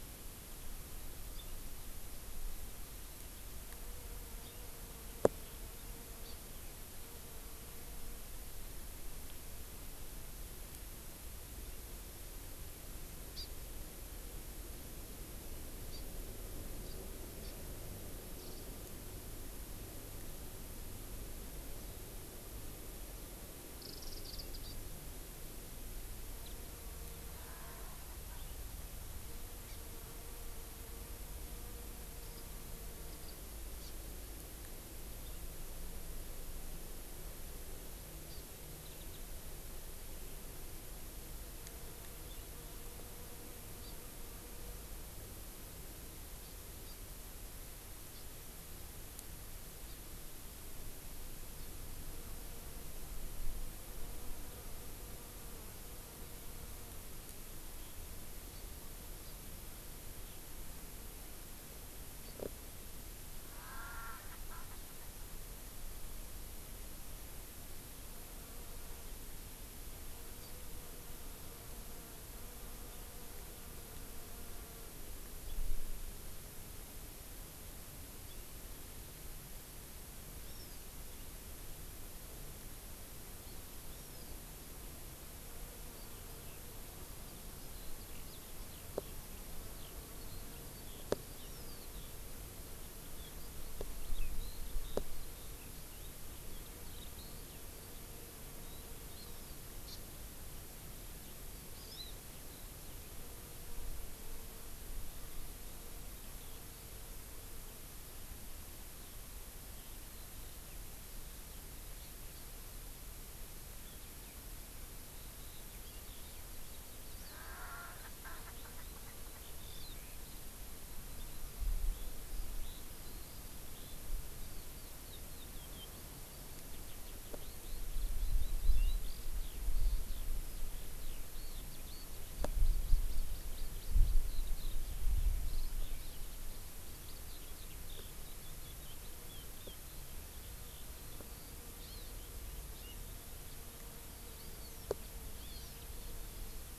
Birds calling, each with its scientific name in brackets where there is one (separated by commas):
Hawaii Amakihi (Chlorodrepanis virens), Warbling White-eye (Zosterops japonicus), Eurasian Skylark (Alauda arvensis), Erckel's Francolin (Pternistis erckelii)